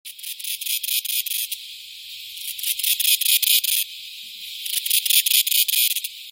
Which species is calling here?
Henicopsaltria eydouxii